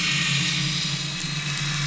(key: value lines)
label: anthrophony, boat engine
recorder: SoundTrap 500